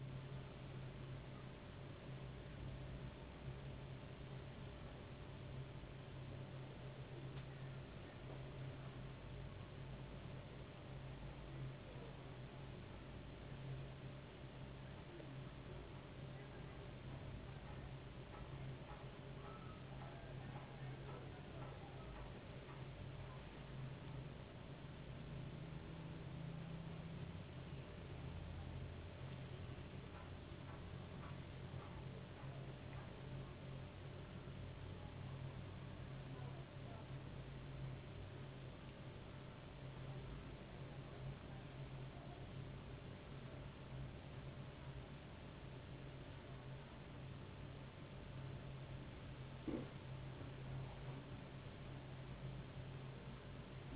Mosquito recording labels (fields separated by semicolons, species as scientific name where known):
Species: no mosquito; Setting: insect culture